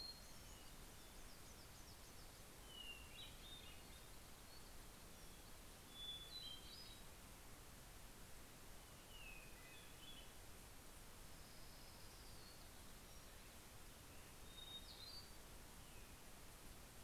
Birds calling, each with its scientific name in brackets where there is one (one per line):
Hermit Warbler (Setophaga occidentalis)
Hermit Thrush (Catharus guttatus)
Orange-crowned Warbler (Leiothlypis celata)